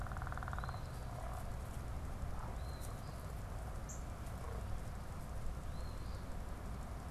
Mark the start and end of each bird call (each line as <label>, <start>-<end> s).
Eastern Phoebe (Sayornis phoebe), 0.5-1.0 s
Eastern Phoebe (Sayornis phoebe), 2.5-3.3 s
Northern Cardinal (Cardinalis cardinalis), 3.8-4.1 s
Eastern Phoebe (Sayornis phoebe), 5.6-6.3 s